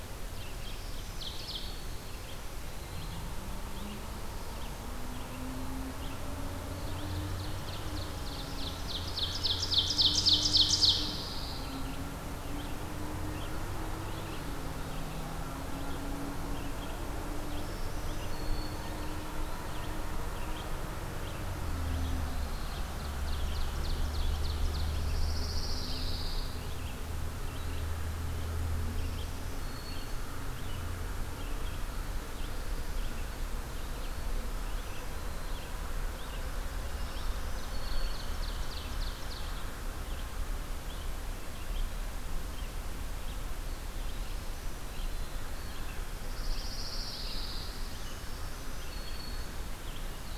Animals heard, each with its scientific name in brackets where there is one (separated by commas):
Pine Warbler (Setophaga pinus), Black-throated Blue Warbler (Setophaga caerulescens), Ovenbird (Seiurus aurocapilla), Red-eyed Vireo (Vireo olivaceus), Eastern Wood-Pewee (Contopus virens), Black-throated Green Warbler (Setophaga virens)